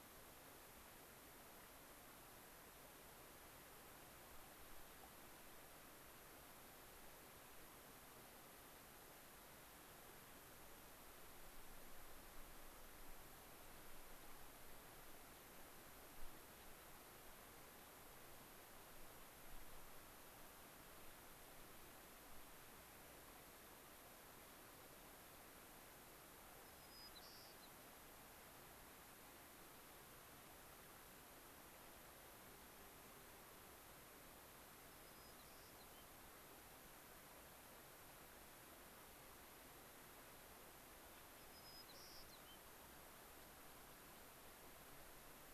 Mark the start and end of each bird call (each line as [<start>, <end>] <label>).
[26.63, 27.73] White-crowned Sparrow (Zonotrichia leucophrys)
[34.83, 36.03] White-crowned Sparrow (Zonotrichia leucophrys)
[41.33, 42.63] White-crowned Sparrow (Zonotrichia leucophrys)
[43.33, 45.33] American Pipit (Anthus rubescens)